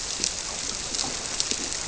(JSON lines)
{"label": "biophony", "recorder": "SoundTrap 300"}